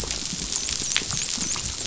{"label": "biophony, dolphin", "recorder": "SoundTrap 500"}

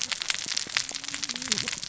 {"label": "biophony, cascading saw", "recorder": "SoundTrap 600 or HydroMoth"}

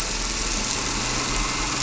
{"label": "anthrophony, boat engine", "recorder": "SoundTrap 300"}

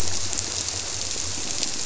{"label": "biophony", "recorder": "SoundTrap 300"}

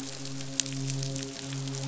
{"label": "biophony, midshipman", "recorder": "SoundTrap 500"}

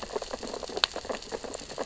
{"label": "biophony, sea urchins (Echinidae)", "recorder": "SoundTrap 600 or HydroMoth"}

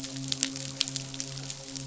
{"label": "biophony, midshipman", "recorder": "SoundTrap 500"}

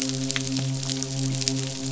{"label": "biophony, midshipman", "recorder": "SoundTrap 500"}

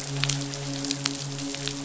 {"label": "biophony, midshipman", "recorder": "SoundTrap 500"}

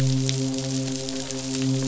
{"label": "biophony, midshipman", "recorder": "SoundTrap 500"}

